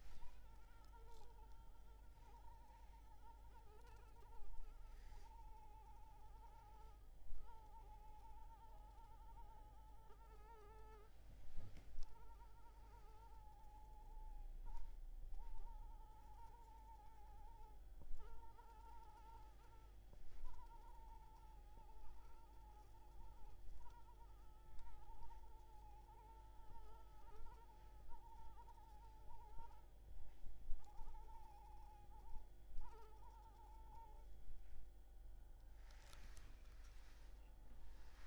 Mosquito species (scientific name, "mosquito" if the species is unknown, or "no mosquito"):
Anopheles maculipalpis